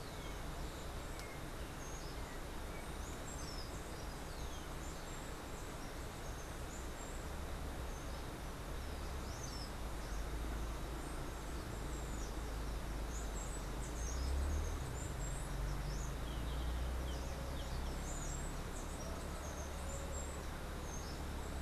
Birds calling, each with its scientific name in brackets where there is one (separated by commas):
Rufous-collared Sparrow (Zonotrichia capensis), Steely-vented Hummingbird (Saucerottia saucerottei)